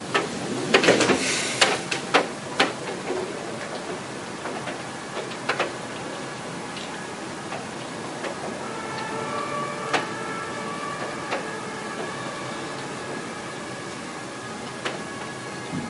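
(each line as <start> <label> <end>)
0.0 Cars humming quietly in a steady, distant pattern. 15.9
0.0 A raindrop hits metal loudly in a repeating pattern. 2.8
2.7 A raindrop hits metal quietly in a repeating pattern. 5.5
5.4 A raindrop hits metal loudly in a repeating pattern. 5.7
6.4 A siren sounds quietly in a repeating pattern. 8.5
8.5 A siren fades in loudly in a pattern outdoors. 15.9
9.9 A raindrop hits metal loudly once. 10.1
11.3 A raindrop hits metal loudly once. 11.5
14.8 A raindrop hits metal loudly once. 14.9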